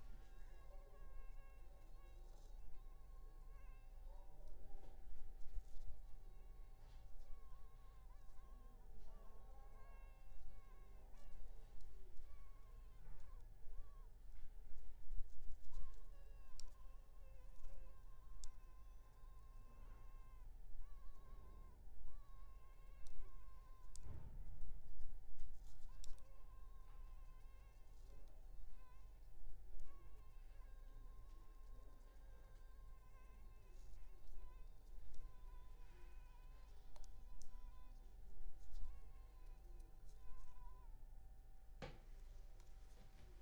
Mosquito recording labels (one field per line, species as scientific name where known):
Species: Culex pipiens complex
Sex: female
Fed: unfed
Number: one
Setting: cup